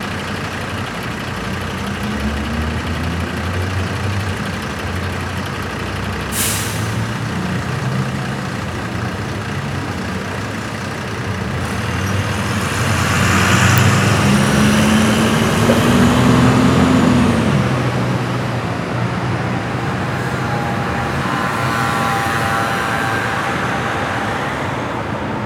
Does this sound like a road with cars and trucks running?
yes